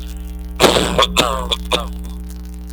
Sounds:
Cough